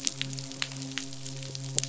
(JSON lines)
{"label": "biophony, midshipman", "recorder": "SoundTrap 500"}